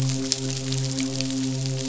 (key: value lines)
label: biophony, midshipman
recorder: SoundTrap 500